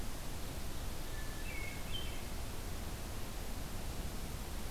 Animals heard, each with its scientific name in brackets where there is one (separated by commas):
Hermit Thrush (Catharus guttatus)